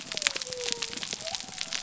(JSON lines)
{"label": "biophony", "recorder": "SoundTrap 300"}